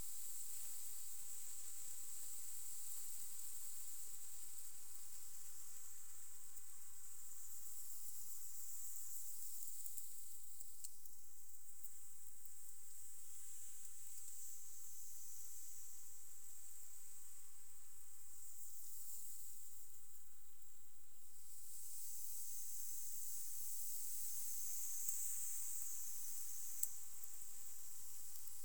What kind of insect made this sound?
orthopteran